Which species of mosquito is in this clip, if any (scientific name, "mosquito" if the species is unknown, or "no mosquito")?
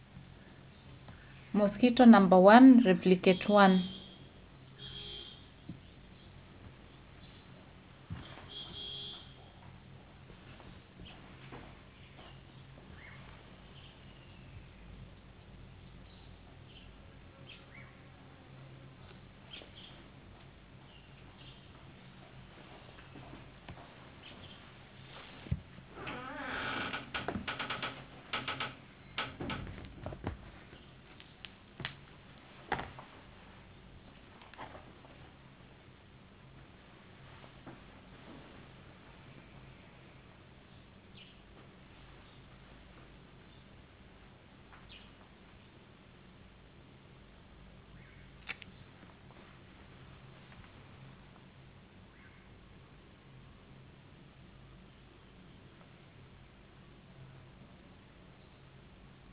no mosquito